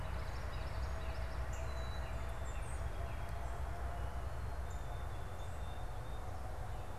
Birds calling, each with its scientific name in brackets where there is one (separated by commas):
Northern Cardinal (Cardinalis cardinalis), Black-capped Chickadee (Poecile atricapillus), unidentified bird, Common Yellowthroat (Geothlypis trichas)